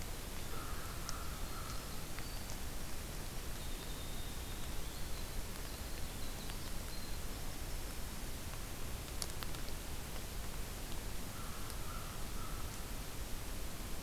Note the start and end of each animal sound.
0.0s-8.2s: Winter Wren (Troglodytes hiemalis)
0.4s-2.0s: American Crow (Corvus brachyrhynchos)
11.0s-13.0s: American Crow (Corvus brachyrhynchos)

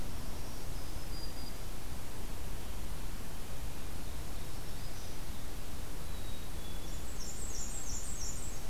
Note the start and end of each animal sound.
0.2s-1.7s: Black-throated Green Warbler (Setophaga virens)
4.1s-5.2s: Black-throated Green Warbler (Setophaga virens)
5.9s-7.1s: Black-capped Chickadee (Poecile atricapillus)
6.8s-8.6s: Black-and-white Warbler (Mniotilta varia)

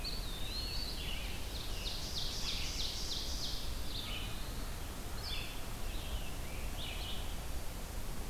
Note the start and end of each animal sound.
0.0s-1.2s: Eastern Wood-Pewee (Contopus virens)
0.0s-2.8s: Scarlet Tanager (Piranga olivacea)
0.0s-8.3s: Red-eyed Vireo (Vireo olivaceus)
1.1s-3.9s: Ovenbird (Seiurus aurocapilla)
3.4s-4.8s: Black-throated Blue Warbler (Setophaga caerulescens)
5.0s-7.0s: Scarlet Tanager (Piranga olivacea)

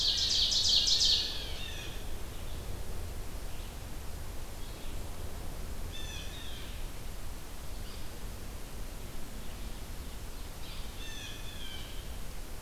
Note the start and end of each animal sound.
0.0s-1.5s: Ovenbird (Seiurus aurocapilla)
0.0s-2.2s: Blue Jay (Cyanocitta cristata)
0.0s-12.6s: Red-eyed Vireo (Vireo olivaceus)
5.8s-6.9s: Blue Jay (Cyanocitta cristata)
7.7s-8.0s: Yellow-bellied Sapsucker (Sphyrapicus varius)
9.2s-10.8s: Ovenbird (Seiurus aurocapilla)
10.6s-10.8s: Yellow-bellied Sapsucker (Sphyrapicus varius)
10.8s-12.2s: Blue Jay (Cyanocitta cristata)

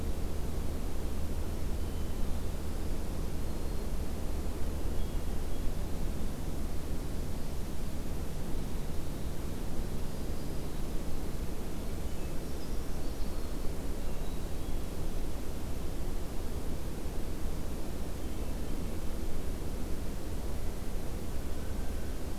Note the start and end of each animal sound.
1.4s-2.6s: Hermit Thrush (Catharus guttatus)
3.0s-4.0s: Black-throated Green Warbler (Setophaga virens)
4.6s-6.0s: Hermit Thrush (Catharus guttatus)
9.9s-11.0s: Black-throated Green Warbler (Setophaga virens)
11.7s-12.7s: Hermit Thrush (Catharus guttatus)
12.1s-13.6s: Brown Creeper (Certhia americana)
13.8s-15.0s: Hermit Thrush (Catharus guttatus)
17.7s-19.2s: Hermit Thrush (Catharus guttatus)
21.4s-22.2s: Blue Jay (Cyanocitta cristata)

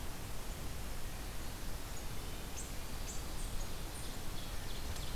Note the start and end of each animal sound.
1.4s-5.2s: unknown mammal

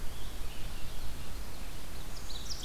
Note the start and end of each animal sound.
0.0s-1.5s: Scarlet Tanager (Piranga olivacea)
1.7s-2.6s: Ovenbird (Seiurus aurocapilla)

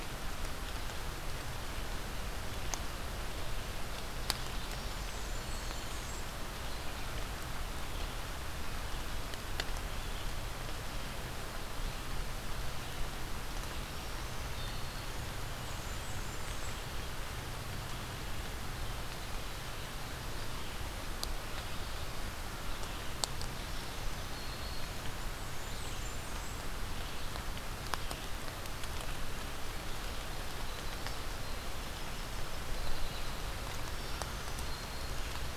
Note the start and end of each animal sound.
4.9s-6.3s: Blackburnian Warbler (Setophaga fusca)
5.0s-6.0s: Black-throated Green Warbler (Setophaga virens)
13.7s-15.2s: Black-throated Green Warbler (Setophaga virens)
15.4s-16.9s: Blackburnian Warbler (Setophaga fusca)
23.5s-25.1s: Black-throated Green Warbler (Setophaga virens)
25.1s-26.7s: Blackburnian Warbler (Setophaga fusca)
30.4s-33.5s: Winter Wren (Troglodytes hiemalis)
33.7s-35.6s: Black-throated Green Warbler (Setophaga virens)

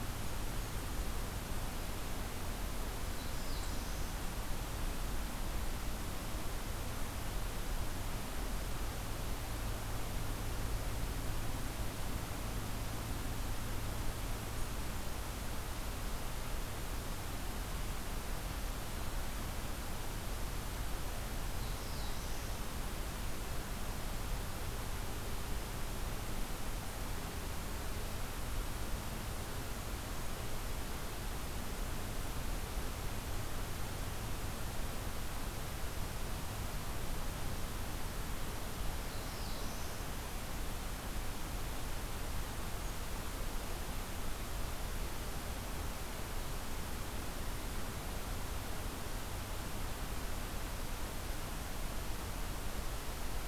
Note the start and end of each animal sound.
3.1s-4.3s: Black-throated Blue Warbler (Setophaga caerulescens)
21.3s-22.8s: Black-throated Blue Warbler (Setophaga caerulescens)
38.8s-40.0s: Black-throated Blue Warbler (Setophaga caerulescens)

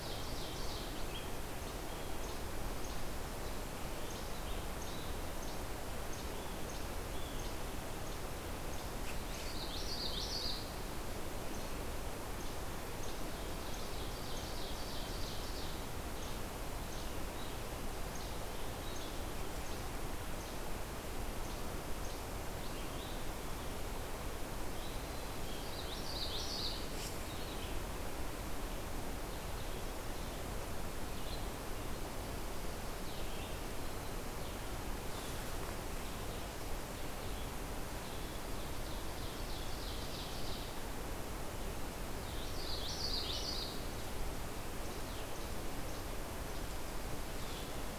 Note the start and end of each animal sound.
0.0s-0.9s: Ovenbird (Seiurus aurocapilla)
0.0s-22.4s: Least Flycatcher (Empidonax minimus)
4.0s-12.0s: Red-eyed Vireo (Vireo olivaceus)
9.3s-10.7s: Common Yellowthroat (Geothlypis trichas)
12.9s-15.8s: Ovenbird (Seiurus aurocapilla)
16.1s-48.0s: Red-eyed Vireo (Vireo olivaceus)
25.4s-26.9s: Common Yellowthroat (Geothlypis trichas)
38.2s-40.6s: Ovenbird (Seiurus aurocapilla)
42.2s-43.8s: Common Yellowthroat (Geothlypis trichas)
45.8s-48.0s: Least Flycatcher (Empidonax minimus)

